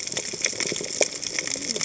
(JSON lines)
{"label": "biophony, cascading saw", "recorder": "HydroMoth"}